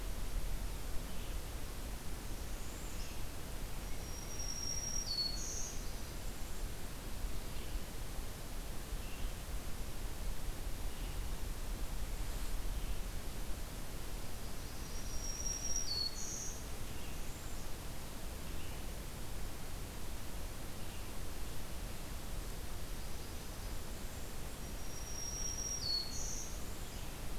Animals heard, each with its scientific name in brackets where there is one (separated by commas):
Black-throated Green Warbler (Setophaga virens), Red-eyed Vireo (Vireo olivaceus), Northern Parula (Setophaga americana)